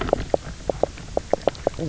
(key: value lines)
label: biophony, knock croak
recorder: SoundTrap 300